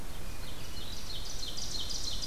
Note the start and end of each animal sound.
0.0s-1.3s: Hermit Thrush (Catharus guttatus)
0.4s-2.3s: Ovenbird (Seiurus aurocapilla)

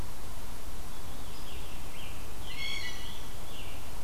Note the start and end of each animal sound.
0.8s-4.0s: Scarlet Tanager (Piranga olivacea)
0.9s-1.9s: Veery (Catharus fuscescens)
1.9s-3.6s: Blue Jay (Cyanocitta cristata)

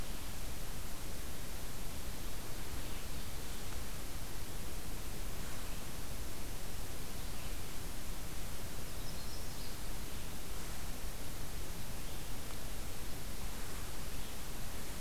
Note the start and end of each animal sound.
8.7s-9.9s: Yellow-rumped Warbler (Setophaga coronata)

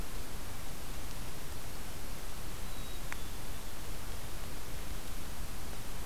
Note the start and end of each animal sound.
2.5s-3.6s: Black-capped Chickadee (Poecile atricapillus)

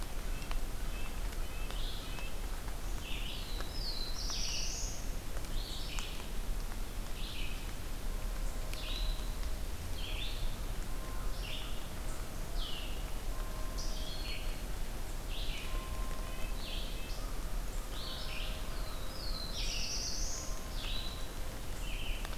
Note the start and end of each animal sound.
0.0s-2.5s: Red-breasted Nuthatch (Sitta canadensis)
0.0s-22.4s: Red-eyed Vireo (Vireo olivaceus)
3.1s-5.3s: Black-throated Blue Warbler (Setophaga caerulescens)
11.0s-12.9s: American Crow (Corvus brachyrhynchos)
15.4s-17.3s: Red-breasted Nuthatch (Sitta canadensis)
18.5s-20.9s: Black-throated Blue Warbler (Setophaga caerulescens)

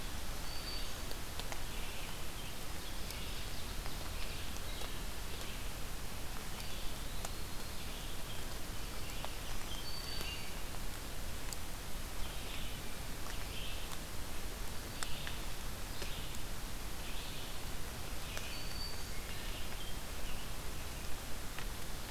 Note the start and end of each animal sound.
0.0s-22.1s: Red-eyed Vireo (Vireo olivaceus)
0.3s-1.3s: Black-throated Green Warbler (Setophaga virens)
2.7s-4.7s: Ovenbird (Seiurus aurocapilla)
9.5s-10.7s: Black-throated Green Warbler (Setophaga virens)
18.2s-19.5s: Black-throated Green Warbler (Setophaga virens)

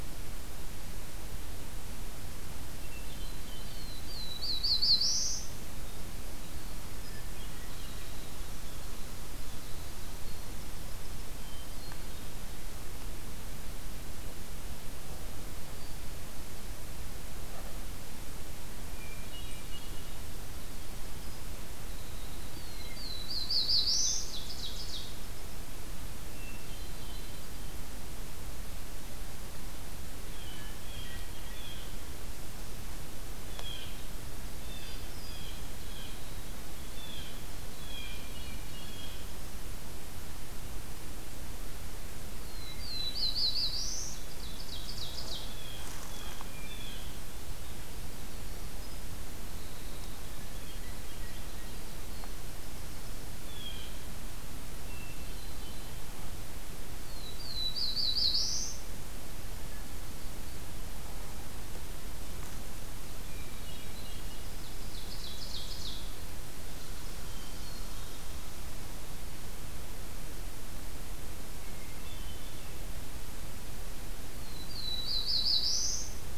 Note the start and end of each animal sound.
2.6s-4.0s: Hermit Thrush (Catharus guttatus)
3.4s-5.6s: Black-throated Blue Warbler (Setophaga caerulescens)
6.1s-11.3s: Winter Wren (Troglodytes hiemalis)
6.9s-8.3s: Hermit Thrush (Catharus guttatus)
11.2s-12.6s: Hermit Thrush (Catharus guttatus)
18.7s-20.7s: Hermit Thrush (Catharus guttatus)
20.9s-23.1s: Winter Wren (Troglodytes hiemalis)
22.4s-24.4s: Black-throated Blue Warbler (Setophaga caerulescens)
23.9s-25.3s: Ovenbird (Seiurus aurocapilla)
26.1s-27.7s: Hermit Thrush (Catharus guttatus)
30.2s-32.1s: Blue Jay (Cyanocitta cristata)
33.4s-34.1s: Blue Jay (Cyanocitta cristata)
34.6s-36.3s: Blue Jay (Cyanocitta cristata)
34.7s-35.8s: Black-throated Blue Warbler (Setophaga caerulescens)
36.9s-39.2s: Blue Jay (Cyanocitta cristata)
42.6s-44.3s: Black-throated Blue Warbler (Setophaga caerulescens)
44.3s-45.8s: Ovenbird (Seiurus aurocapilla)
46.0s-47.2s: Blue Jay (Cyanocitta cristata)
47.2s-53.3s: Winter Wren (Troglodytes hiemalis)
50.3s-51.7s: Hermit Thrush (Catharus guttatus)
53.3s-54.2s: Blue Jay (Cyanocitta cristata)
54.6s-56.1s: Hermit Thrush (Catharus guttatus)
56.9s-59.1s: Black-throated Blue Warbler (Setophaga caerulescens)
63.2s-64.3s: Hermit Thrush (Catharus guttatus)
64.2s-66.2s: Ovenbird (Seiurus aurocapilla)
66.9s-68.3s: Hermit Thrush (Catharus guttatus)
71.3s-72.9s: Hermit Thrush (Catharus guttatus)
74.3s-76.4s: Black-throated Blue Warbler (Setophaga caerulescens)

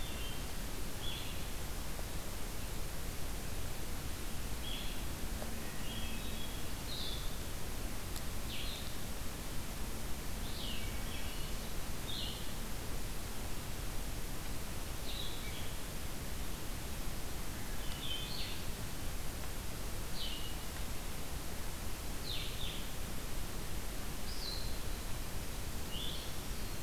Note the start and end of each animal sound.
0.0s-0.8s: Hermit Thrush (Catharus guttatus)
0.0s-26.8s: Blue-headed Vireo (Vireo solitarius)
5.2s-7.0s: Hermit Thrush (Catharus guttatus)
10.1s-11.8s: Hermit Thrush (Catharus guttatus)
26.0s-26.8s: Black-throated Green Warbler (Setophaga virens)

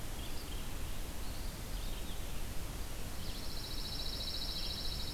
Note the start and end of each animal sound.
0.0s-5.1s: Red-eyed Vireo (Vireo olivaceus)
1.0s-2.2s: Eastern Wood-Pewee (Contopus virens)
3.1s-5.1s: Pine Warbler (Setophaga pinus)

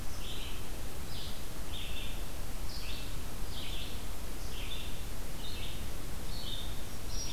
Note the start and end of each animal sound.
0.0s-7.3s: Red-eyed Vireo (Vireo olivaceus)

